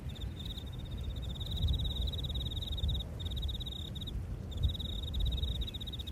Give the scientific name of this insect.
Teleogryllus commodus